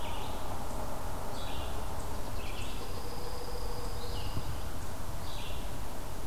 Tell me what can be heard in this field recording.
Red-eyed Vireo, unknown mammal, Pine Warbler